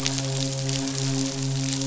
{"label": "biophony, midshipman", "recorder": "SoundTrap 500"}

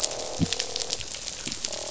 {"label": "biophony, croak", "recorder": "SoundTrap 500"}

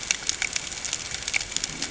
{"label": "ambient", "recorder": "HydroMoth"}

